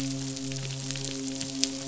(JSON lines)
{"label": "biophony, midshipman", "recorder": "SoundTrap 500"}